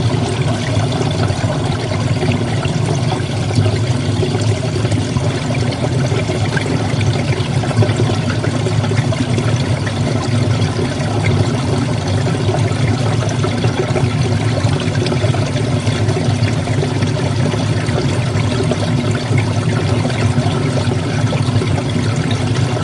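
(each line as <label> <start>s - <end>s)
Water flows in an underground stream, echoing through the cavern, while drops fall from above, creating dripping sounds. 0.0s - 22.8s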